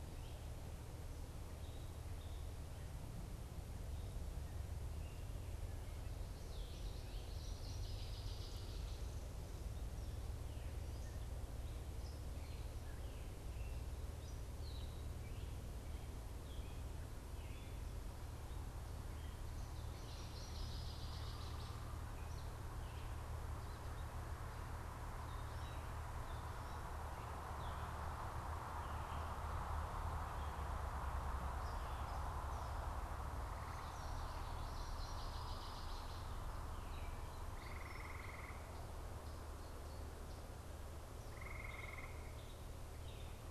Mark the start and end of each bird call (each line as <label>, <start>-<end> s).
Gray Catbird (Dumetella carolinensis), 4.8-43.5 s
Northern Waterthrush (Parkesia noveboracensis), 7.2-9.0 s
Northern Waterthrush (Parkesia noveboracensis), 19.9-21.9 s
Common Yellowthroat (Geothlypis trichas), 33.5-35.1 s
Northern Waterthrush (Parkesia noveboracensis), 34.7-36.4 s